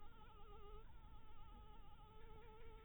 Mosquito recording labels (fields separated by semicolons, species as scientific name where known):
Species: Anopheles harrisoni; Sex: female; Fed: blood-fed; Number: one; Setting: cup